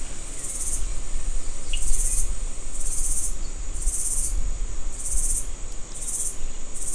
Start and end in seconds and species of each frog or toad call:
1.7	1.8	Cochran's lime tree frog

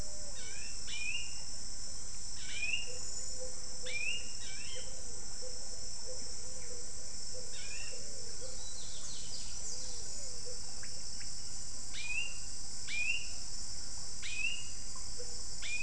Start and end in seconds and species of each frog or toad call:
none

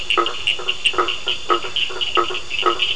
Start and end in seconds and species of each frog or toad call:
0.3	2.9	blacksmith tree frog
0.3	2.9	two-colored oval frog
0.3	2.9	Cochran's lime tree frog

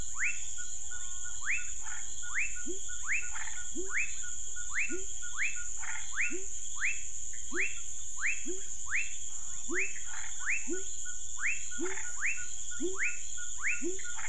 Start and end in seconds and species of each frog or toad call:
0.0	14.2	rufous frog
2.6	14.2	pepper frog
3.2	3.7	Chaco tree frog
5.7	6.1	Chaco tree frog
10.0	10.4	Chaco tree frog
11.8	12.2	Chaco tree frog

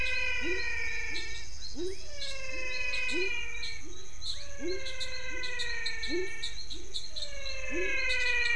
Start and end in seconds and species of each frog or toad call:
0.0	8.0	pepper frog
0.0	8.5	menwig frog
1.8	2.1	rufous frog
4.3	4.5	rufous frog

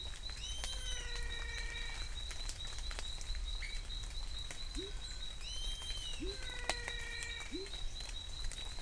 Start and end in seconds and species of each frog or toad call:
0.0	8.8	Adenomera diptyx
0.6	2.3	menwig frog
4.4	8.8	pepper frog
6.2	7.8	menwig frog

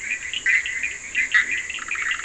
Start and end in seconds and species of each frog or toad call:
0.0	2.1	Leptodactylus latrans
0.0	2.2	Bischoff's tree frog
0.0	2.2	Cochran's lime tree frog

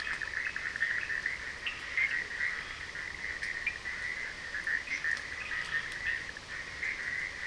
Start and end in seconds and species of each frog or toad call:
0.0	1.8	Cochran's lime tree frog
0.0	7.4	Bischoff's tree frog
4.9	6.1	Cochran's lime tree frog
5.3	5.9	Scinax perereca

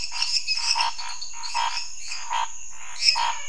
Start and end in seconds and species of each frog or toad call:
0.0	3.4	lesser tree frog
0.0	3.4	dwarf tree frog
0.0	3.4	Scinax fuscovarius
2.6	3.4	menwig frog

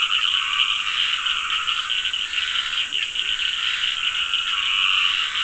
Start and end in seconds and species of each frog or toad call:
0.0	5.4	Dendropsophus nahdereri
0.0	5.4	Scinax perereca
2.7	3.3	Leptodactylus latrans

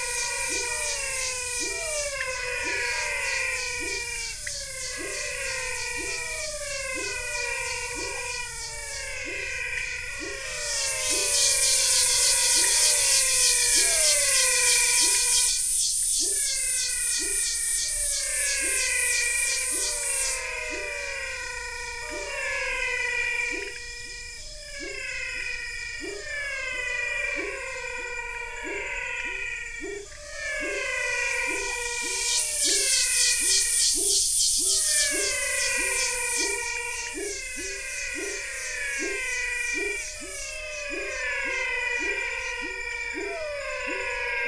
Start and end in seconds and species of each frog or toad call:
0.0	44.4	pepper frog
0.0	44.4	menwig frog
2.0	2.6	pointedbelly frog
4.1	4.8	pointedbelly frog
9.6	9.9	pointedbelly frog
15.1	15.3	pointedbelly frog
19.1	32.9	pointedbelly frog
36.7	43.1	pointedbelly frog

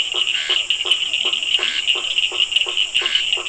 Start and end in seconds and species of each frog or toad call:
0.0	3.4	blacksmith tree frog
0.0	3.4	Physalaemus cuvieri
0.0	3.4	Scinax perereca
0.9	1.9	Leptodactylus latrans

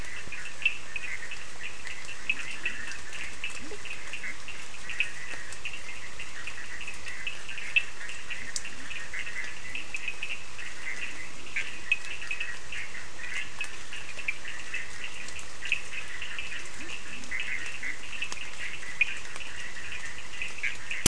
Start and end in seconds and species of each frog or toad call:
0.0	21.0	Bischoff's tree frog
0.0	21.0	Cochran's lime tree frog
2.2	4.4	Leptodactylus latrans
8.3	10.0	Leptodactylus latrans
11.0	11.9	Leptodactylus latrans
16.7	18.1	Leptodactylus latrans

